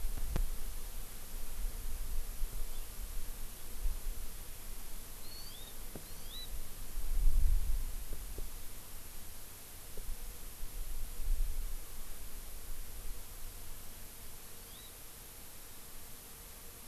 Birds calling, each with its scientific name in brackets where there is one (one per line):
Hawaii Amakihi (Chlorodrepanis virens)